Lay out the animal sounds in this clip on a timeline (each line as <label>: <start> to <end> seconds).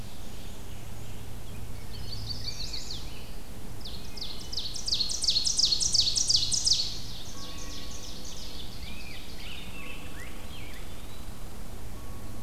Ovenbird (Seiurus aurocapilla): 0.0 to 0.6 seconds
Black-and-white Warbler (Mniotilta varia): 0.0 to 1.3 seconds
Scarlet Tanager (Piranga olivacea): 0.3 to 1.9 seconds
Chestnut-sided Warbler (Setophaga pensylvanica): 1.7 to 3.0 seconds
Rose-breasted Grosbeak (Pheucticus ludovicianus): 2.3 to 3.3 seconds
Ovenbird (Seiurus aurocapilla): 3.7 to 9.7 seconds
Rose-breasted Grosbeak (Pheucticus ludovicianus): 8.6 to 10.8 seconds
Eastern Wood-Pewee (Contopus virens): 10.5 to 11.6 seconds